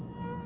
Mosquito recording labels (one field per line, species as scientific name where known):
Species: Aedes albopictus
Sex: female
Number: one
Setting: insect culture